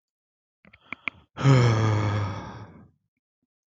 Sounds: Sigh